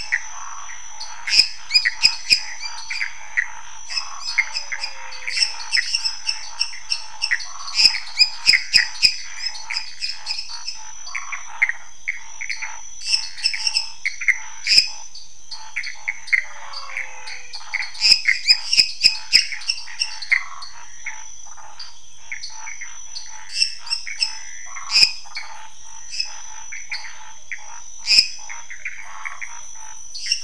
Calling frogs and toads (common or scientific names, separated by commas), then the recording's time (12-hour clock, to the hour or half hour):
lesser tree frog, Pithecopus azureus, Scinax fuscovarius, waxy monkey tree frog, menwig frog, dwarf tree frog
10:30pm